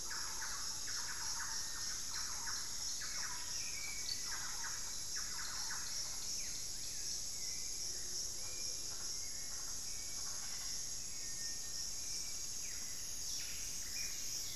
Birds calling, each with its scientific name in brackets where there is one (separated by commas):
Hauxwell's Thrush (Turdus hauxwelli), unidentified bird, Buff-breasted Wren (Cantorchilus leucotis), Thrush-like Wren (Campylorhynchus turdinus), Pygmy Antwren (Myrmotherula brachyura), Black-faced Antthrush (Formicarius analis)